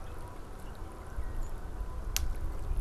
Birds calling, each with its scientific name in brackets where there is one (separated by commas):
Canada Goose (Branta canadensis)